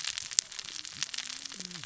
{"label": "biophony, cascading saw", "recorder": "SoundTrap 600 or HydroMoth"}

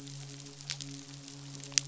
{"label": "biophony, midshipman", "recorder": "SoundTrap 500"}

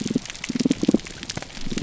{"label": "biophony", "recorder": "SoundTrap 300"}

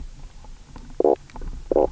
{"label": "biophony, knock croak", "recorder": "SoundTrap 300"}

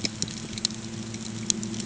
{"label": "anthrophony, boat engine", "recorder": "HydroMoth"}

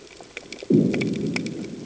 {"label": "anthrophony, bomb", "recorder": "HydroMoth"}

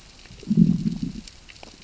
{"label": "biophony, growl", "recorder": "SoundTrap 600 or HydroMoth"}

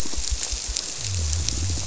{"label": "biophony, squirrelfish (Holocentrus)", "recorder": "SoundTrap 300"}
{"label": "biophony", "recorder": "SoundTrap 300"}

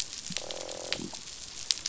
{"label": "biophony, croak", "recorder": "SoundTrap 500"}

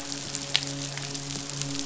{"label": "biophony, midshipman", "recorder": "SoundTrap 500"}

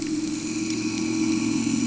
{"label": "anthrophony, boat engine", "recorder": "HydroMoth"}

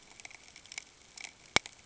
{"label": "ambient", "recorder": "HydroMoth"}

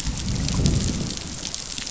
{"label": "biophony, growl", "recorder": "SoundTrap 500"}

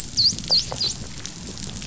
{"label": "biophony, dolphin", "recorder": "SoundTrap 500"}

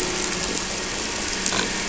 {"label": "anthrophony, boat engine", "recorder": "SoundTrap 300"}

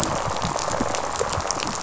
{"label": "biophony, rattle response", "recorder": "SoundTrap 500"}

